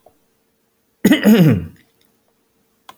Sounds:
Throat clearing